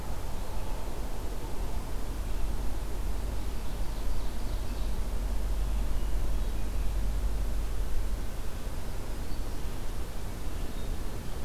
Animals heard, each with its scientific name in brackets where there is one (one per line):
Ovenbird (Seiurus aurocapilla)